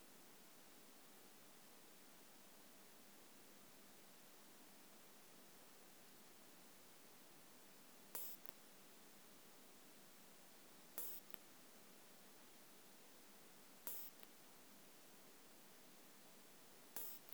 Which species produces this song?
Isophya modestior